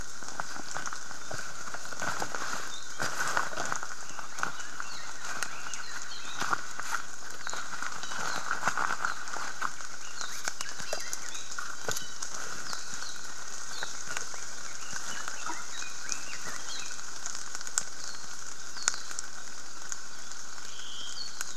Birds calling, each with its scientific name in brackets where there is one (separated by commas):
Red-billed Leiothrix (Leiothrix lutea), Iiwi (Drepanis coccinea), Apapane (Himatione sanguinea)